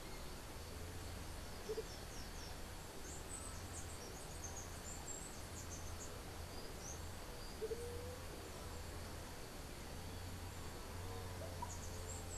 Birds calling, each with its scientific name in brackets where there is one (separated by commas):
Andean Motmot (Momotus aequatorialis), Chestnut-capped Brushfinch (Arremon brunneinucha)